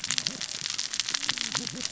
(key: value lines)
label: biophony, cascading saw
recorder: SoundTrap 600 or HydroMoth